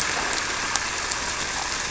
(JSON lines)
{"label": "anthrophony, boat engine", "recorder": "SoundTrap 300"}